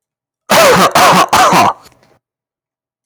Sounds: Cough